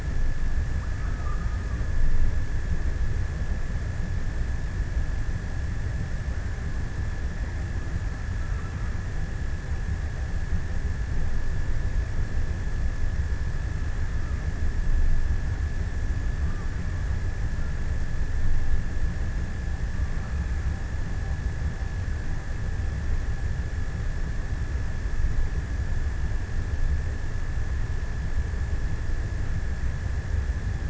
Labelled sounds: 0.3	3.3	killer whale, offshore, 0.85 to 1.5 kHz
19.3	20.8	killer whale, offshore, 0.71 to 1.9 kHz

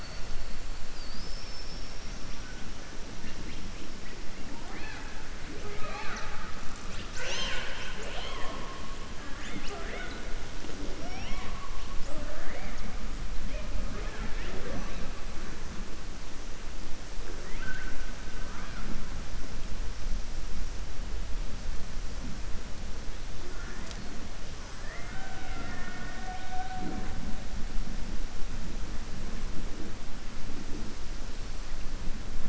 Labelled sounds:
17.3	18.0	killer whale, southern resident, 1.2 to 3.1 kHz

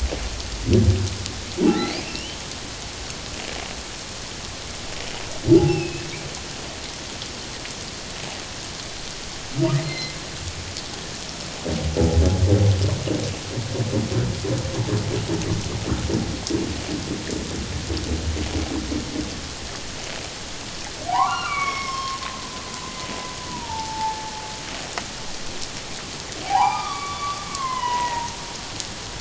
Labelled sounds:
1.6	2.4	humpback whale, 0.78 to 3.2 kHz
5.6	6.0	humpback whale, 0.78 to 5.4 kHz
9.8	10.2	humpback whale, 2.0 to 4.2 kHz
21.1	22.2	humpback whale, 0.78 to 5.6 kHz
23.5	24.3	humpback whale, 0.78 to 1.0 kHz
26.4	28.3	humpback whale, 0.78 to 3.1 kHz

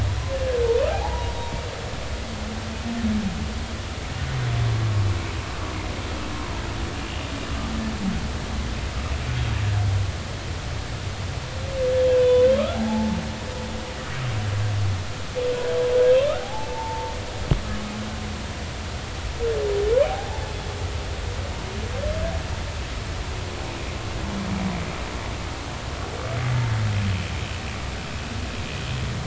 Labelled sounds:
0.9	1.3	humpback whale, 0.80 to 1.0 kHz
12.1	12.5	humpback whale, 0.93 to 3.6 kHz
12.7	13.2	humpback whale, 0.80 to 0.96 kHz
16.4	17.1	humpback whale, 0.80 to 0.96 kHz
20.0	20.5	humpback whale, 0.80 to 0.93 kHz
26.4	26.7	humpback whale, 2.0 to 2.1 kHz

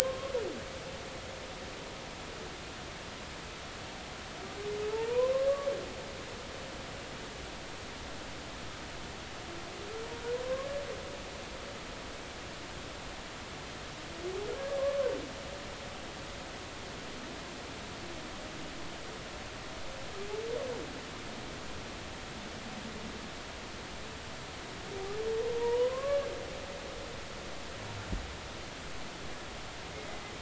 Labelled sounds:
0.0	0.3	humpback whale, 0.99 to 1.1 kHz
4.9	5.5	humpback whale, 0.83 to 1.1 kHz
10.4	10.7	humpback whale, 0.99 to 1.2 kHz
14.8	15.2	humpback whale, 0.90 to 1.2 kHz
25.6	26.3	humpback whale, 0.90 to 1.8 kHz

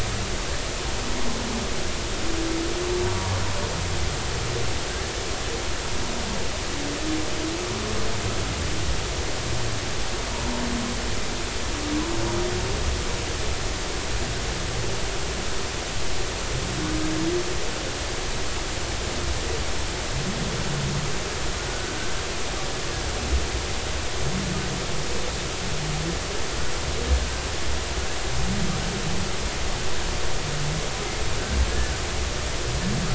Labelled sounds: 21.7	22.0	humpback whale, 1.4 to 1.5 kHz

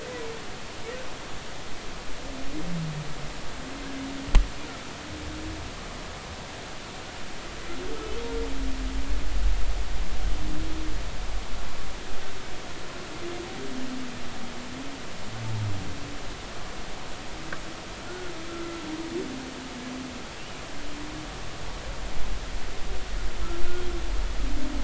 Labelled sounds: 18.1	18.8	humpback whale, 1.3 to 1.5 kHz

